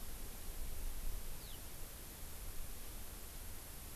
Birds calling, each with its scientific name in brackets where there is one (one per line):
Eurasian Skylark (Alauda arvensis)